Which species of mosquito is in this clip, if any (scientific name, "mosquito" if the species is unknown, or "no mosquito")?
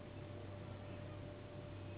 Anopheles gambiae s.s.